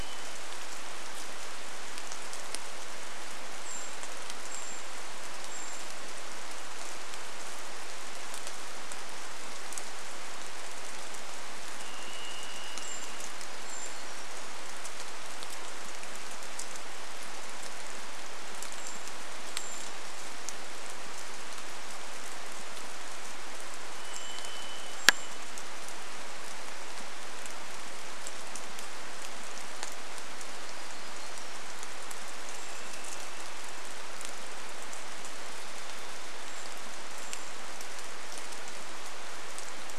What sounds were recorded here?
Varied Thrush song, rain, Brown Creeper call, Hermit Warbler song